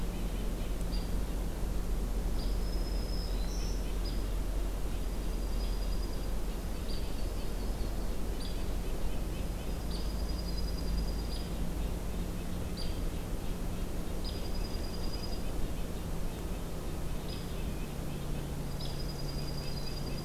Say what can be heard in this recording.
Red-breasted Nuthatch, Hairy Woodpecker, Black-throated Green Warbler, Dark-eyed Junco, Yellow-rumped Warbler